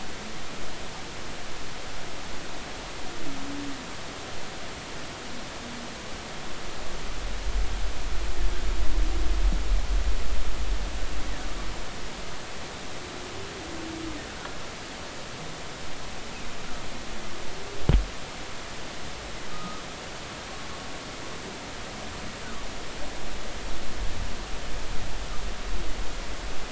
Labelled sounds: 19.5	19.8	humpback whale, 1.2 to 1.4 kHz

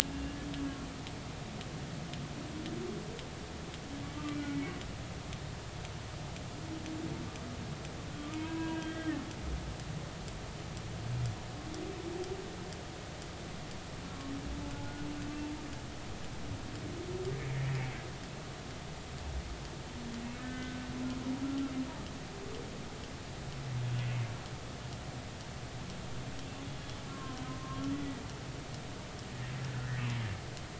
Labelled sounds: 0.0	0.4	humpback whale, 2.7 to 2.9 kHz
4.3	4.7	humpback whale, 2.1 to 2.4 kHz
8.3	9.2	humpback whale, 0.90 to 3.2 kHz
20.4	20.8	humpback whale, 1.5 to 1.6 kHz
27.1	27.8	humpback whale, 0.99 to 1.2 kHz
29.7	30.0	humpback whale, 1.4 to 1.5 kHz

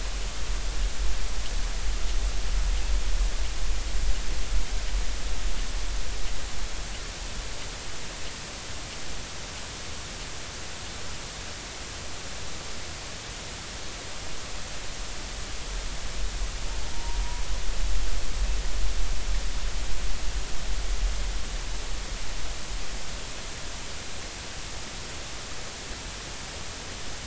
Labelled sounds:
16.9	17.2	humpback whale, 0.83 to 1.0 kHz

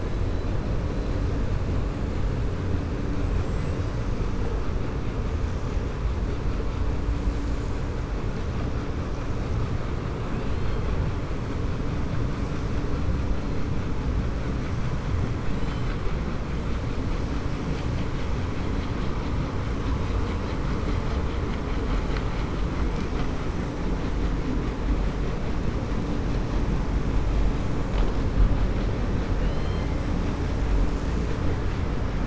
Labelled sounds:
3.2	3.8	killer whale, 7.4 to 8.0 kHz
15.5	16.0	killer whale, 1.3 to 5.1 kHz
29.3	29.9	killer whale, 2.1 to 5.2 kHz

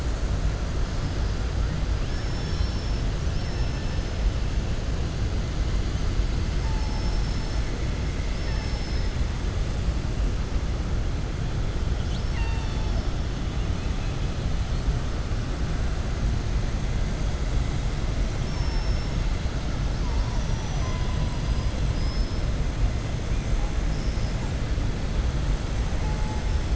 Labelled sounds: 2.0	3.0	killer whale, southern resident, 2.6 to 6.4 kHz
6.7	7.6	killer whale, southern resident, 4.3 to 5.9 kHz
8.2	9.1	killer whale, southern resident, 0.86 to 6.1 kHz
12.0	13.1	killer whale, southern resident, 0.92 to 5.8 kHz
13.6	14.2	killer whale, southern resident, 1.7 to 3.4 kHz
18.3	19.1	killer whale, southern resident, 5.1 to 5.8 kHz
19.9	21.0	killer whale, southern resident, 4.4 to 6.9 kHz
21.8	22.4	killer whale, southern resident, 4.3 to 5.3 kHz

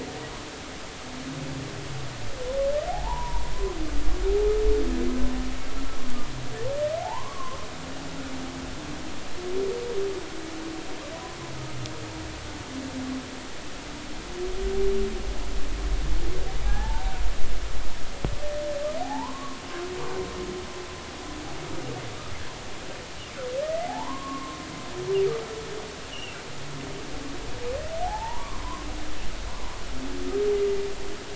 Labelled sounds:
2.9	3.5	humpback whale, 0.80 to 1.1 kHz
8.0	8.6	humpback whale, 0.80 to 1.2 kHz
16.6	17.1	humpback whale, 0.80 to 1.8 kHz
19.0	19.6	humpback whale, 0.80 to 1.2 kHz
23.6	24.6	humpback whale, 0.80 to 2.1 kHz
26.1	26.4	humpback whale, 2.6 to 3.1 kHz
28.0	28.9	humpback whale, 0.80 to 1.2 kHz
29.5	29.8	humpback whale, 0.90 to 1.2 kHz

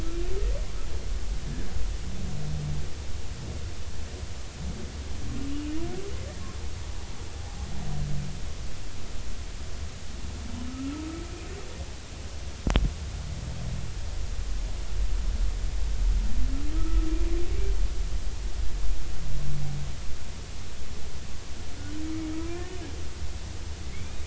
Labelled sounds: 10.7	11.2	humpback whale, 1.2 to 1.4 kHz
16.8	17.1	humpback whale, 1.2 to 1.4 kHz
22.5	22.8	humpback whale, 1.7 to 1.9 kHz
23.8	24.2	humpback whale, 2.0 to 2.5 kHz

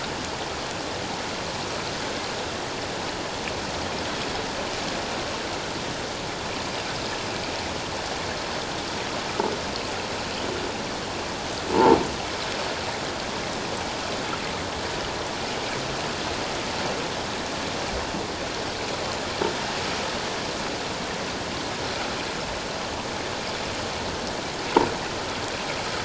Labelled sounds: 11.7	12.0	croaking sound likely from a nearby submerged object, 0.81 to 1.1 kHz

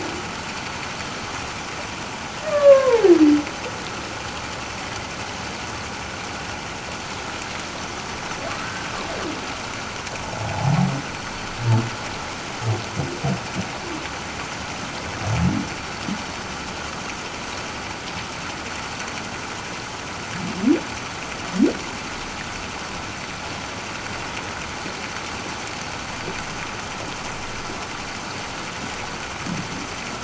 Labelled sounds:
2.5	3.1	humpback whale, 0.78 to 1.8 kHz
10.4	10.7	humpback whale, 0.78 to 0.91 kHz

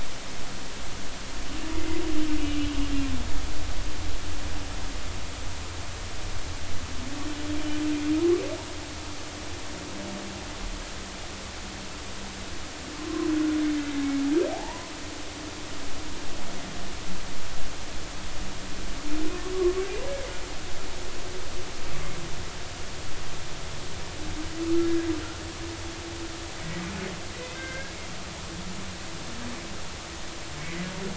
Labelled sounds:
1.7	2.0	humpback whale, 1.9 to 2.1 kHz
14.5	14.9	humpback whale, 0.80 to 1.1 kHz
19.3	20.4	humpback whale, 0.99 to 2.3 kHz
27.3	28.0	humpback whale, 1.5 to 2.2 kHz

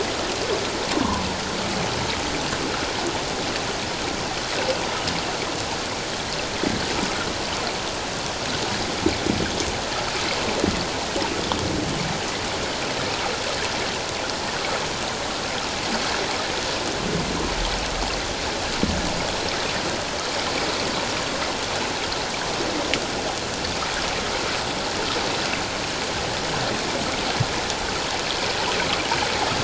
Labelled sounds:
0.9	1.2	humpback whale, 0.88 to 1.2 kHz

